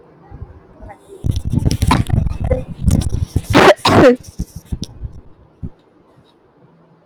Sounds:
Cough